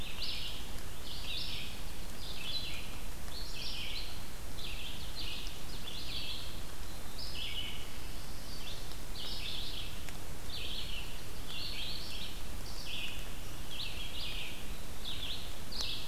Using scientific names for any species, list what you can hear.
Vireo olivaceus, Seiurus aurocapilla